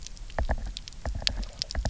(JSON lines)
{"label": "biophony, knock", "recorder": "SoundTrap 300"}